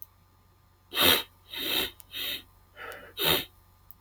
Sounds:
Sniff